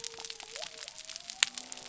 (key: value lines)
label: biophony
recorder: SoundTrap 300